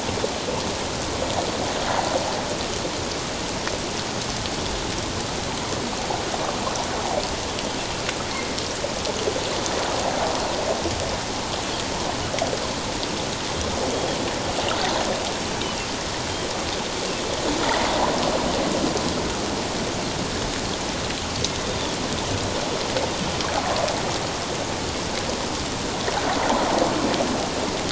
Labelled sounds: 8.3	8.6	Pacific white-sided dolphin, 2.0 to 2.2 kHz
21.7	22.0	Pacific white-sided dolphin, 3.3 to 3.7 kHz
26.4	26.7	water noise, 0.78 to 1.1 kHz

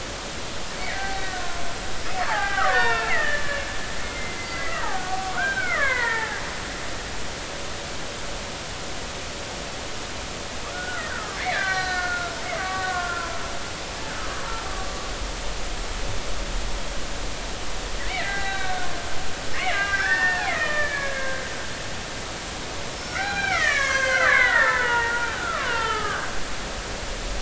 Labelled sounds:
0.9	1.6	killer whale, Bigg's (transient), 0.80 to 4.3 kHz
2.2	3.6	killer whale, Bigg's (transient), 0.80 to 3.8 kHz
4.0	6.4	killer whale, Bigg's (transient), 0.80 to 2.4 kHz
10.7	13.4	killer whale, Bigg's (transient), 0.96 to 4.3 kHz
18.1	18.9	killer whale, Bigg's (transient), 0.80 to 4.0 kHz
19.5	21.4	killer whale, Bigg's (transient), 1.2 to 3.0 kHz
22.9	26.3	killer whale, Bigg's (transient), 0.80 to 7.7 kHz

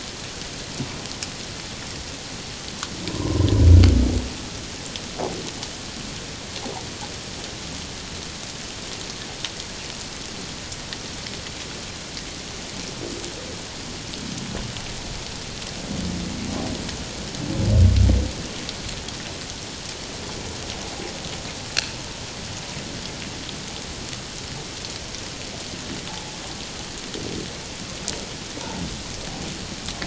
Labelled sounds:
3.1	3.5	humpback whale, 0.94 to 1.1 kHz
26.1	26.4	humpback whale, 0.78 to 0.91 kHz

